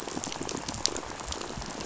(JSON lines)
{"label": "biophony, rattle", "recorder": "SoundTrap 500"}